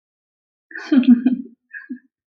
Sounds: Laughter